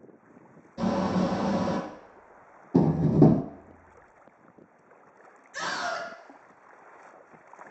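At 0.77 seconds, the sound of a smoke extractor is heard. After that, at 2.74 seconds, wooden furniture moving can be heard. Finally, at 5.53 seconds, someone screams.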